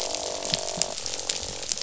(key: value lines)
label: biophony, croak
recorder: SoundTrap 500

label: biophony
recorder: SoundTrap 500